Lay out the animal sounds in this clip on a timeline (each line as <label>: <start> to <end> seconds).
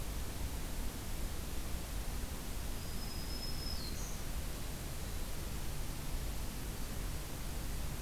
Black-throated Green Warbler (Setophaga virens): 2.6 to 4.3 seconds